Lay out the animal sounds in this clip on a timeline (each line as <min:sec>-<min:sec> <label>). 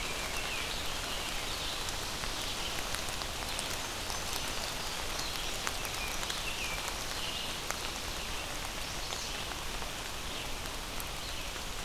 0:00.0-0:01.5 American Robin (Turdus migratorius)
0:00.0-0:11.8 Red-eyed Vireo (Vireo olivaceus)
0:05.7-0:07.7 American Robin (Turdus migratorius)